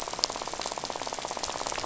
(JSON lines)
{"label": "biophony, rattle", "recorder": "SoundTrap 500"}